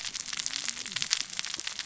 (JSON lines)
{"label": "biophony, cascading saw", "recorder": "SoundTrap 600 or HydroMoth"}